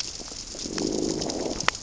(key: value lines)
label: biophony, growl
recorder: SoundTrap 600 or HydroMoth